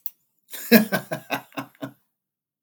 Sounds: Laughter